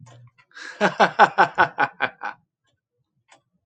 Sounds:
Laughter